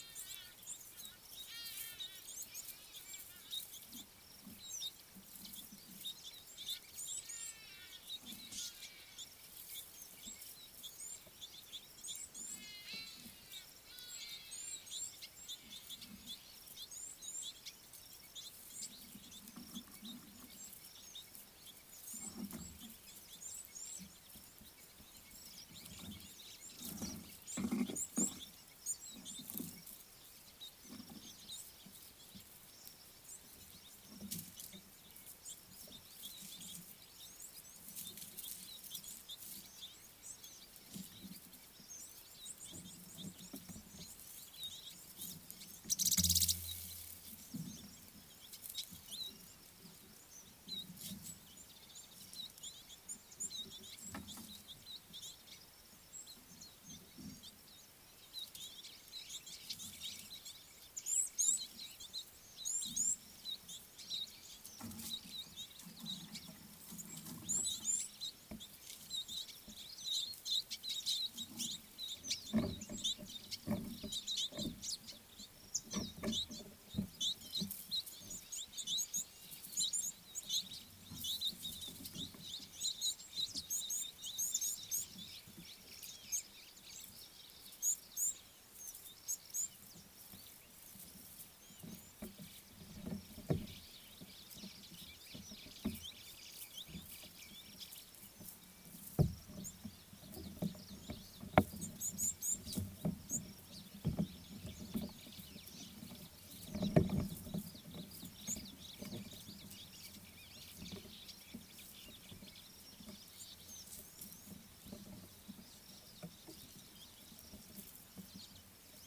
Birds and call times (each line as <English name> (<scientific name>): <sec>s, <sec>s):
Hadada Ibis (Bostrychia hagedash): 0.1s, 14.2s
Red-billed Firefinch (Lagonosticta senegala): 6.7s, 16.8s, 39.2s, 49.1s, 55.0s, 63.5s, 70.8s, 81.5s
Red-cheeked Cordonbleu (Uraeginthus bengalus): 7.2s, 14.7s, 17.1s, 23.6s, 27.9s, 61.5s, 67.8s, 80.0s, 84.0s, 87.8s, 102.2s
Purple Grenadier (Granatina ianthinogaster): 46.1s
White-browed Sparrow-Weaver (Plocepasser mahali): 95.7s
Red-faced Crombec (Sylvietta whytii): 108.2s